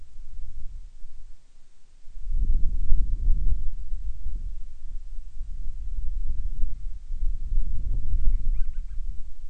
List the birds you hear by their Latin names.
Hydrobates castro